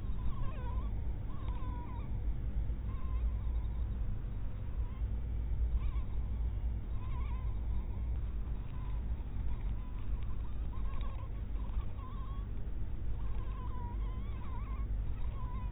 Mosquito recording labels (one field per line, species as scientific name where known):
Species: mosquito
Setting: cup